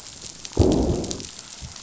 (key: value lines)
label: biophony, growl
recorder: SoundTrap 500